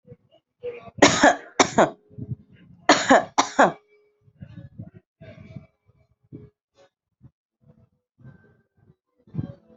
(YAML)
expert_labels:
- quality: good
  cough_type: dry
  dyspnea: false
  wheezing: false
  stridor: false
  choking: false
  congestion: false
  nothing: true
  diagnosis: upper respiratory tract infection
  severity: mild
age: 26
gender: female
respiratory_condition: true
fever_muscle_pain: false
status: COVID-19